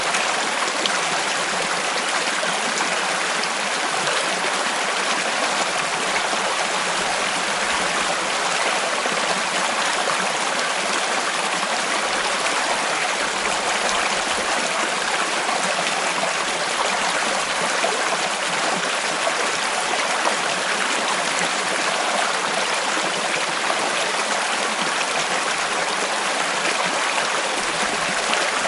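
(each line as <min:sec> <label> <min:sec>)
0:00.0 Water flows in a stream. 0:28.7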